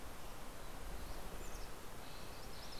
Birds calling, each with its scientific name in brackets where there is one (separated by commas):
Red-breasted Nuthatch (Sitta canadensis), MacGillivray's Warbler (Geothlypis tolmiei)